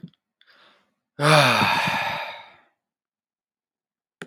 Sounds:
Sigh